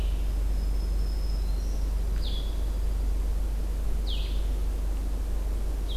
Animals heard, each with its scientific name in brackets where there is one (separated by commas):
Blue-headed Vireo (Vireo solitarius), Black-throated Green Warbler (Setophaga virens)